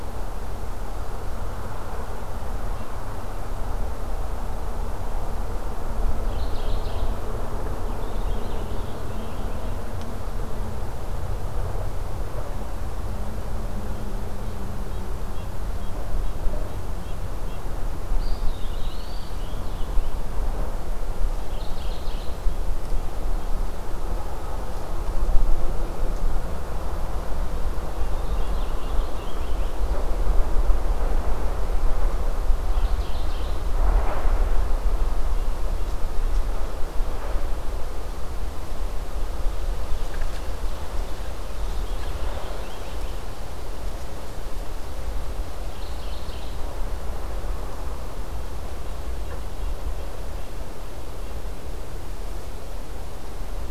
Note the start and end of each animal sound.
[5.92, 7.23] Mourning Warbler (Geothlypis philadelphia)
[7.78, 9.78] Purple Finch (Haemorhous purpureus)
[18.05, 19.42] Eastern Wood-Pewee (Contopus virens)
[18.26, 20.17] Purple Finch (Haemorhous purpureus)
[21.34, 22.40] Mourning Warbler (Geothlypis philadelphia)
[27.92, 29.89] Purple Finch (Haemorhous purpureus)
[32.50, 33.63] Mourning Warbler (Geothlypis philadelphia)
[41.15, 43.12] Purple Finch (Haemorhous purpureus)
[45.40, 46.74] Mourning Warbler (Geothlypis philadelphia)

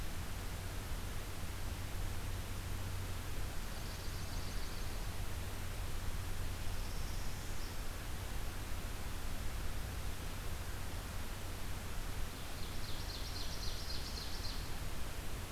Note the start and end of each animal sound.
[3.57, 5.03] Swamp Sparrow (Melospiza georgiana)
[6.45, 7.82] Northern Parula (Setophaga americana)
[12.36, 14.70] Ovenbird (Seiurus aurocapilla)

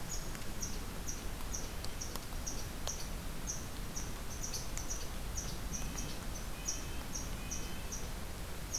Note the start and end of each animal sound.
[0.00, 8.79] Red Squirrel (Tamiasciurus hudsonicus)
[5.72, 8.02] Red-breasted Nuthatch (Sitta canadensis)

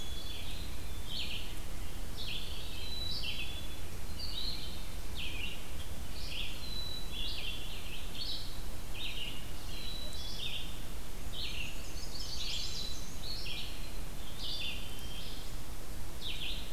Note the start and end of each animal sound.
[0.00, 1.25] Black-capped Chickadee (Poecile atricapillus)
[0.93, 16.73] Red-eyed Vireo (Vireo olivaceus)
[2.72, 3.89] Black-capped Chickadee (Poecile atricapillus)
[6.39, 7.77] Black-capped Chickadee (Poecile atricapillus)
[9.48, 10.78] Black-capped Chickadee (Poecile atricapillus)
[11.17, 13.31] Black-and-white Warbler (Mniotilta varia)
[12.38, 13.20] Black-capped Chickadee (Poecile atricapillus)
[14.39, 15.19] Black-capped Chickadee (Poecile atricapillus)

